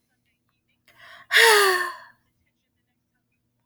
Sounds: Sigh